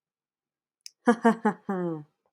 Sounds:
Laughter